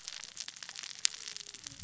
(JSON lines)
{"label": "biophony, cascading saw", "recorder": "SoundTrap 600 or HydroMoth"}